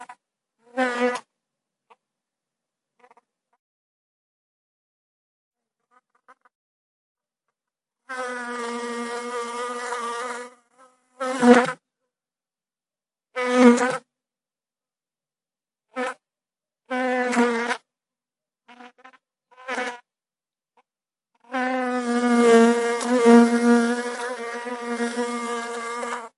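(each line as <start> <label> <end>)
0.7 An insect flying by. 1.3
8.0 An insect is flying. 10.5
11.1 An insect flying by. 11.8
13.2 An insect flying by. 14.1
15.9 An insect is flying. 16.2
16.9 An insect is flying. 17.8
19.6 An insect is flying. 20.0
21.4 An insect is flying. 26.3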